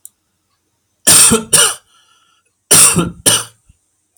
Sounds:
Cough